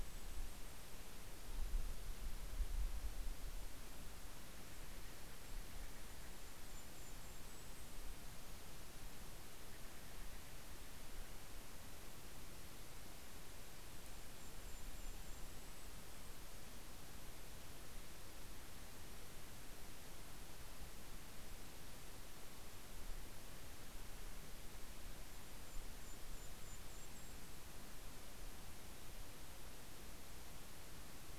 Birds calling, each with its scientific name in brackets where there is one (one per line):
Steller's Jay (Cyanocitta stelleri)
Golden-crowned Kinglet (Regulus satrapa)